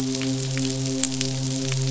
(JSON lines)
{"label": "biophony, midshipman", "recorder": "SoundTrap 500"}